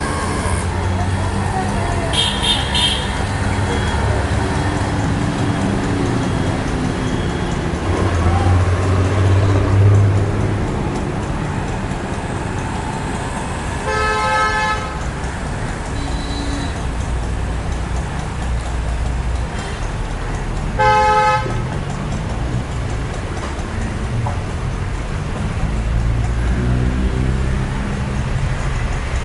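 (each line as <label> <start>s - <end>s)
The hum of traffic. 0.0s - 29.2s
A motorcycle is driving. 0.0s - 8.0s
Three consecutive high-pitched car horns. 2.1s - 3.1s
A car horn sounds faintly in the distance. 4.5s - 8.1s
A high-pitched, scream-like sound. 8.2s - 8.8s
A car accelerates and passes by. 8.7s - 12.6s
A car horn honks. 13.9s - 15.4s
A subtle rattling sound in the distance. 14.4s - 26.0s
A motorcycle honks faintly. 16.0s - 16.7s
A car honks faintly. 19.5s - 20.1s
A car horn honks nearby. 20.7s - 21.7s
A motorcycle accelerates and passes by. 26.2s - 29.1s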